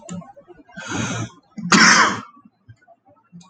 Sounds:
Sneeze